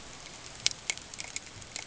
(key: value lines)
label: ambient
recorder: HydroMoth